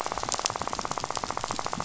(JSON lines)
{"label": "biophony, rattle", "recorder": "SoundTrap 500"}